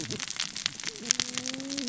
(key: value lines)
label: biophony, cascading saw
recorder: SoundTrap 600 or HydroMoth